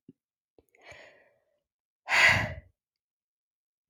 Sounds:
Sigh